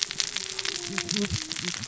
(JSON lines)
{"label": "biophony, cascading saw", "recorder": "SoundTrap 600 or HydroMoth"}